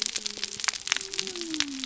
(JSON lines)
{"label": "biophony", "recorder": "SoundTrap 300"}